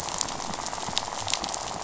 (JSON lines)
{"label": "biophony, rattle", "recorder": "SoundTrap 500"}